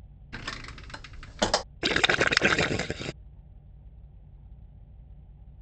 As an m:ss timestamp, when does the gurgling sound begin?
0:02